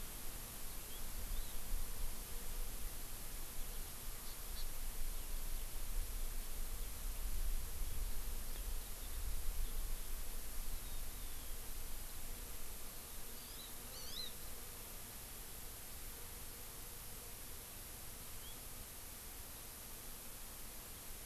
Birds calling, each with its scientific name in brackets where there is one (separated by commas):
Hawaii Amakihi (Chlorodrepanis virens), House Finch (Haemorhous mexicanus)